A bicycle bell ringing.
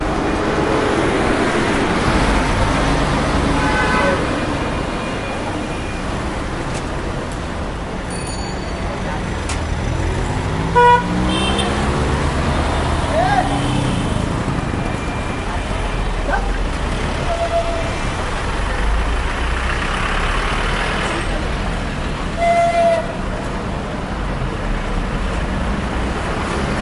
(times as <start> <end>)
8.1 9.2